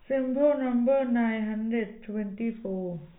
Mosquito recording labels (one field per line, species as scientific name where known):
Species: no mosquito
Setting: cup